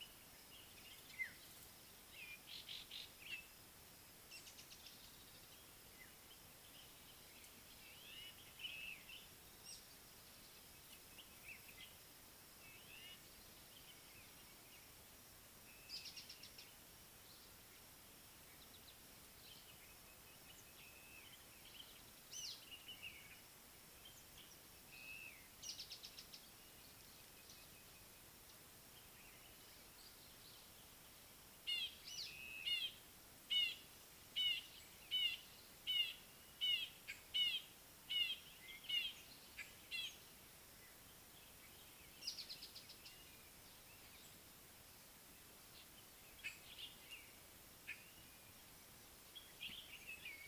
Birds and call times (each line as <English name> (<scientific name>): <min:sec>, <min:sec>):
African Black-headed Oriole (Oriolus larvatus): 0:01.2
Violet-backed Starling (Cinnyricinclus leucogaster): 0:08.7, 0:21.1, 0:25.1
Speckled Mousebird (Colius striatus): 0:16.2, 0:25.9, 0:42.7
Red-fronted Barbet (Tricholaema diademata): 0:35.2
White-bellied Go-away-bird (Corythaixoides leucogaster): 0:46.4